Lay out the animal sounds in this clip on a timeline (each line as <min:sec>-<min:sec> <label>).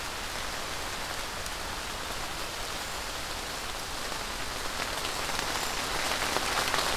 0:05.4-0:05.8 Cedar Waxwing (Bombycilla cedrorum)